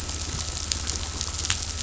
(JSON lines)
{"label": "anthrophony, boat engine", "recorder": "SoundTrap 500"}